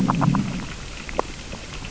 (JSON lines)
{"label": "biophony, growl", "recorder": "SoundTrap 600 or HydroMoth"}
{"label": "biophony, grazing", "recorder": "SoundTrap 600 or HydroMoth"}